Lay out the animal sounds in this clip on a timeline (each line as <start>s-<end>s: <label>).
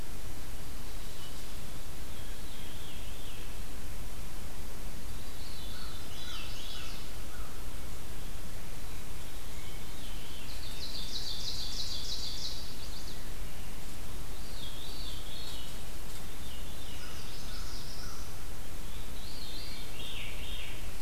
2.0s-3.9s: Veery (Catharus fuscescens)
5.0s-7.2s: Veery (Catharus fuscescens)
5.5s-7.7s: American Crow (Corvus brachyrhynchos)
5.8s-7.1s: Chestnut-sided Warbler (Setophaga pensylvanica)
9.6s-10.5s: Veery (Catharus fuscescens)
10.2s-12.8s: Ovenbird (Seiurus aurocapilla)
12.2s-13.3s: Chestnut-sided Warbler (Setophaga pensylvanica)
14.1s-17.5s: Veery (Catharus fuscescens)
16.6s-18.5s: Black-throated Blue Warbler (Setophaga caerulescens)
16.6s-18.4s: American Crow (Corvus brachyrhynchos)
16.6s-17.9s: Chestnut-sided Warbler (Setophaga pensylvanica)
19.1s-20.9s: Veery (Catharus fuscescens)